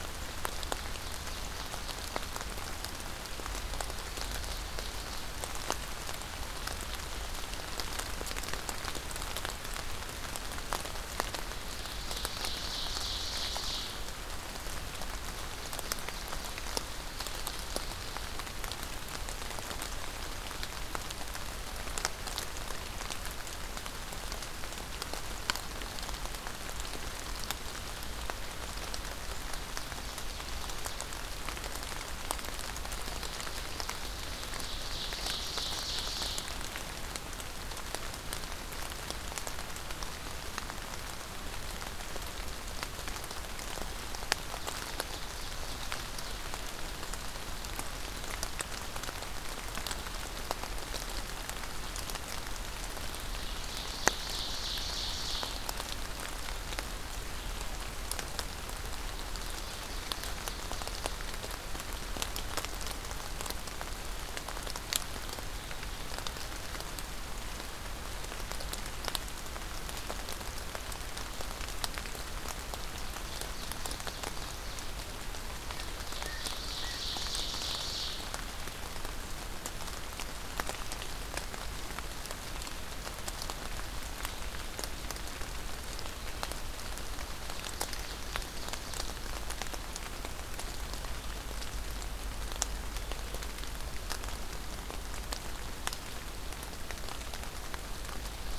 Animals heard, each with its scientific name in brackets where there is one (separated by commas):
Blue Jay (Cyanocitta cristata), Ovenbird (Seiurus aurocapilla)